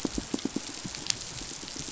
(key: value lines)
label: biophony, pulse
recorder: SoundTrap 500